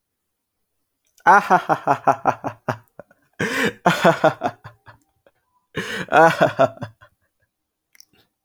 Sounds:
Laughter